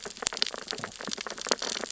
{"label": "biophony, sea urchins (Echinidae)", "recorder": "SoundTrap 600 or HydroMoth"}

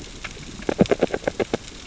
{"label": "biophony, grazing", "recorder": "SoundTrap 600 or HydroMoth"}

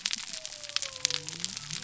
{"label": "biophony", "recorder": "SoundTrap 300"}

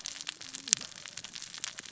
{"label": "biophony, cascading saw", "recorder": "SoundTrap 600 or HydroMoth"}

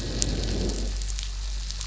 {"label": "biophony, growl", "recorder": "SoundTrap 500"}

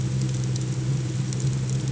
{"label": "anthrophony, boat engine", "recorder": "HydroMoth"}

